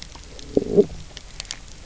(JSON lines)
{"label": "biophony, low growl", "recorder": "SoundTrap 300"}